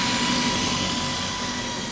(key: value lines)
label: anthrophony, boat engine
recorder: SoundTrap 500